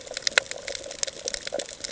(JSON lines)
{"label": "ambient", "recorder": "HydroMoth"}